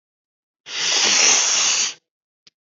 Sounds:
Sniff